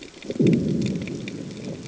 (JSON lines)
{"label": "anthrophony, bomb", "recorder": "HydroMoth"}